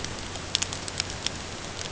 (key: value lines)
label: ambient
recorder: HydroMoth